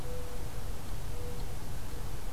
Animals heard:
Mourning Dove (Zenaida macroura)

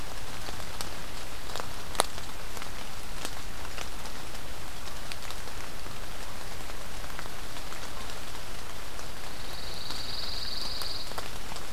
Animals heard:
Pine Warbler (Setophaga pinus)

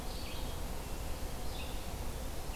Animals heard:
Red-eyed Vireo (Vireo olivaceus)

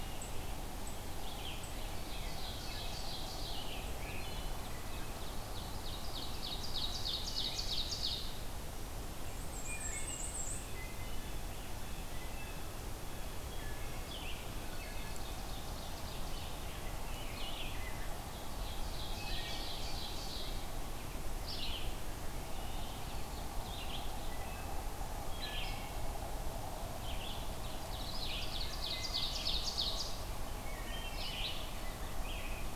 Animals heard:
unknown mammal
Wood Thrush (Hylocichla mustelina)
Red-eyed Vireo (Vireo olivaceus)
Black-and-white Warbler (Mniotilta varia)
Ovenbird (Seiurus aurocapilla)

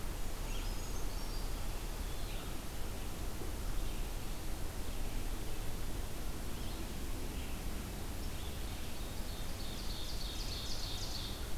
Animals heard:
Brown Creeper (Certhia americana)
Red-eyed Vireo (Vireo olivaceus)
Ovenbird (Seiurus aurocapilla)

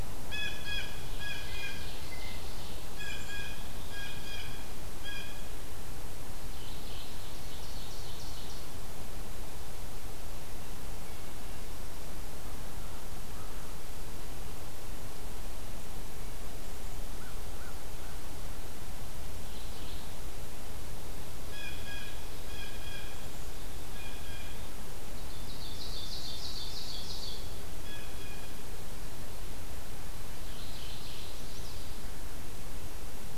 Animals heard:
American Crow (Corvus brachyrhynchos)
Chestnut-sided Warbler (Setophaga pensylvanica)
Black-capped Chickadee (Poecile atricapillus)
Mourning Warbler (Geothlypis philadelphia)
Ovenbird (Seiurus aurocapilla)
Blue Jay (Cyanocitta cristata)

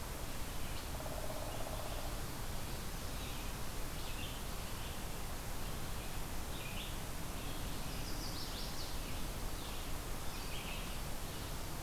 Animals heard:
Red-eyed Vireo (Vireo olivaceus)
Chestnut-sided Warbler (Setophaga pensylvanica)
unknown woodpecker

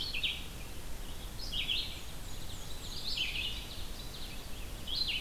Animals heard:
Red-eyed Vireo (Vireo olivaceus)
Black-and-white Warbler (Mniotilta varia)
Ovenbird (Seiurus aurocapilla)

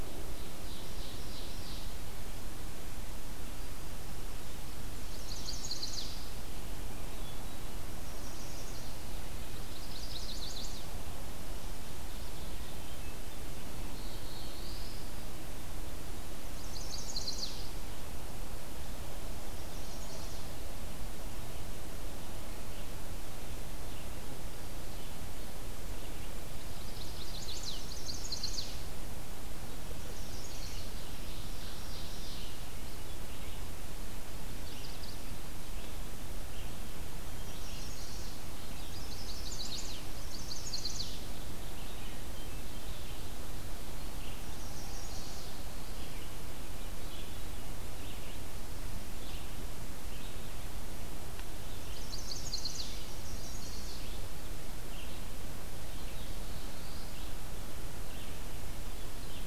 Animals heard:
Red-eyed Vireo (Vireo olivaceus)
Chestnut-sided Warbler (Setophaga pensylvanica)
Black-throated Blue Warbler (Setophaga caerulescens)
Hermit Thrush (Catharus guttatus)
Ovenbird (Seiurus aurocapilla)

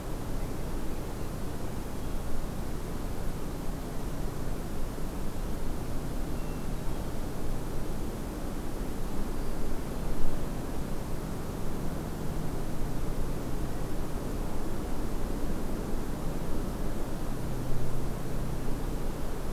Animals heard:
Hermit Thrush (Catharus guttatus)

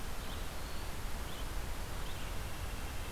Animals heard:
White-breasted Nuthatch (Sitta carolinensis)
Red-eyed Vireo (Vireo olivaceus)

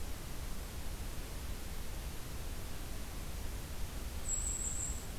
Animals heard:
Golden-crowned Kinglet (Regulus satrapa)

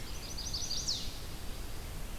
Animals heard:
Chestnut-sided Warbler (Setophaga pensylvanica)

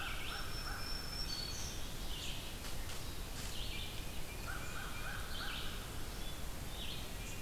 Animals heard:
Red-eyed Vireo (Vireo olivaceus)
unknown mammal
American Crow (Corvus brachyrhynchos)
Black-throated Green Warbler (Setophaga virens)

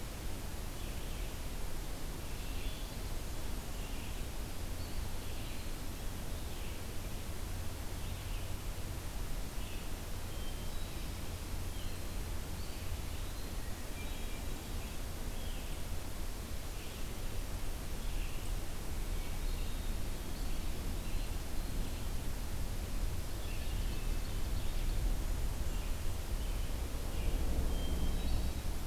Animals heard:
Hermit Thrush (Catharus guttatus)
Eastern Wood-Pewee (Contopus virens)
Red-eyed Vireo (Vireo olivaceus)

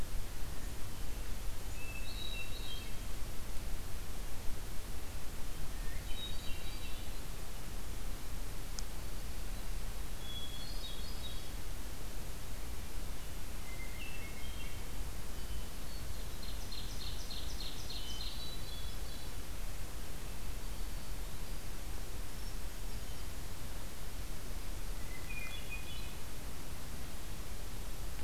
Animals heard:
Hermit Thrush (Catharus guttatus)
Black-throated Green Warbler (Setophaga virens)
Ovenbird (Seiurus aurocapilla)

